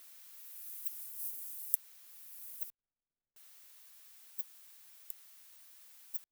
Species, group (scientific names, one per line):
Yersinella raymondii
Orthoptera